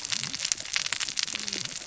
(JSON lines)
{"label": "biophony, cascading saw", "recorder": "SoundTrap 600 or HydroMoth"}